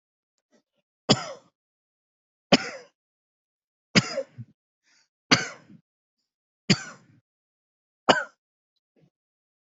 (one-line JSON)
{"expert_labels": [{"quality": "ok", "cough_type": "dry", "dyspnea": false, "wheezing": false, "stridor": false, "choking": false, "congestion": false, "nothing": true, "diagnosis": "COVID-19", "severity": "mild"}], "age": 35, "gender": "male", "respiratory_condition": true, "fever_muscle_pain": true, "status": "COVID-19"}